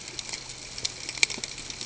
{"label": "ambient", "recorder": "HydroMoth"}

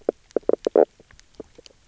{"label": "biophony, knock croak", "recorder": "SoundTrap 300"}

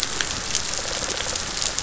{"label": "biophony", "recorder": "SoundTrap 500"}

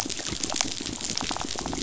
{"label": "biophony", "recorder": "SoundTrap 500"}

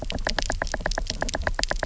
{"label": "biophony, knock", "recorder": "SoundTrap 300"}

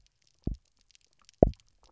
{"label": "biophony, double pulse", "recorder": "SoundTrap 300"}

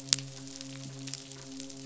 {"label": "biophony, midshipman", "recorder": "SoundTrap 500"}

